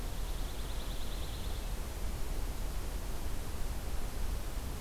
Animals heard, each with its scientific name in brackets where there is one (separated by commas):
Pine Warbler (Setophaga pinus)